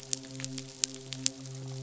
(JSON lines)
{"label": "biophony, midshipman", "recorder": "SoundTrap 500"}